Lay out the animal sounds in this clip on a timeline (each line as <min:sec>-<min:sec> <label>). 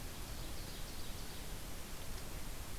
0:00.0-0:01.5 Ovenbird (Seiurus aurocapilla)